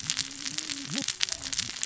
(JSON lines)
{"label": "biophony, cascading saw", "recorder": "SoundTrap 600 or HydroMoth"}